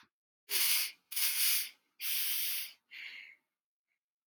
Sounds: Sniff